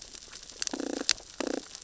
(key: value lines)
label: biophony, damselfish
recorder: SoundTrap 600 or HydroMoth